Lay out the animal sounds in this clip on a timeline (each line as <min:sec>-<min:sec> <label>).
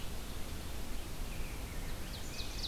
0:01.2-0:02.7 Rose-breasted Grosbeak (Pheucticus ludovicianus)
0:01.9-0:02.7 Ovenbird (Seiurus aurocapilla)